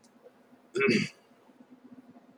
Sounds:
Throat clearing